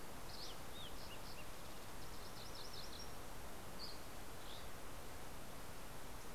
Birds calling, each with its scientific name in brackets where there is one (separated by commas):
MacGillivray's Warbler (Geothlypis tolmiei), Dusky Flycatcher (Empidonax oberholseri), Green-tailed Towhee (Pipilo chlorurus)